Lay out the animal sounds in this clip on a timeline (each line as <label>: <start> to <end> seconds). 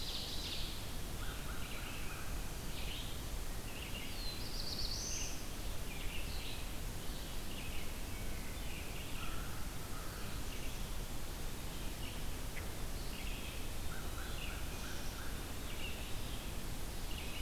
Ovenbird (Seiurus aurocapilla): 0.0 to 1.3 seconds
Red-eyed Vireo (Vireo olivaceus): 0.0 to 17.4 seconds
Eastern Wood-Pewee (Contopus virens): 0.6 to 1.9 seconds
American Crow (Corvus brachyrhynchos): 1.0 to 2.4 seconds
Black-throated Blue Warbler (Setophaga caerulescens): 3.9 to 5.7 seconds
Wood Thrush (Hylocichla mustelina): 7.9 to 8.7 seconds
American Crow (Corvus brachyrhynchos): 9.1 to 10.4 seconds
Eastern Wood-Pewee (Contopus virens): 12.8 to 14.6 seconds
American Crow (Corvus brachyrhynchos): 13.4 to 15.6 seconds
Black-capped Chickadee (Poecile atricapillus): 14.8 to 16.3 seconds